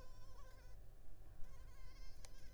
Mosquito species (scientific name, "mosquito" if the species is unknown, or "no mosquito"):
Culex tigripes